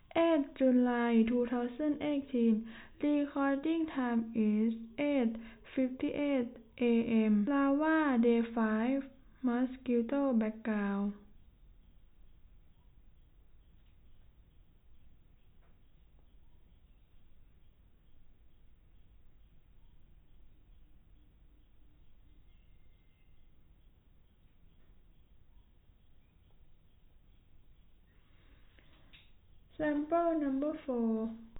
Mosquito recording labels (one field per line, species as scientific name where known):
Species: no mosquito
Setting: cup